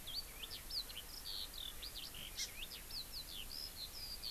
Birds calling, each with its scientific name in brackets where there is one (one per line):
Hawaii Amakihi (Chlorodrepanis virens)
Eurasian Skylark (Alauda arvensis)